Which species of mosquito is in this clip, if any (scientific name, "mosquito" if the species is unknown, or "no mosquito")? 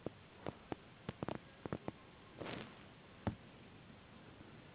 Anopheles gambiae s.s.